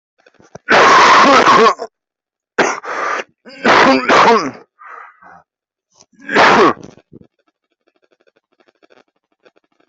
{"expert_labels": [{"quality": "poor", "cough_type": "unknown", "dyspnea": false, "wheezing": false, "stridor": false, "choking": false, "congestion": false, "nothing": true, "diagnosis": "upper respiratory tract infection", "severity": "unknown"}], "age": 30, "gender": "male", "respiratory_condition": false, "fever_muscle_pain": true, "status": "COVID-19"}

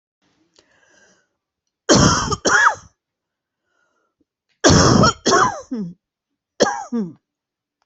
{"expert_labels": [{"quality": "good", "cough_type": "dry", "dyspnea": false, "wheezing": true, "stridor": false, "choking": false, "congestion": false, "nothing": false, "diagnosis": "obstructive lung disease", "severity": "mild"}], "age": 66, "gender": "female", "respiratory_condition": true, "fever_muscle_pain": false, "status": "symptomatic"}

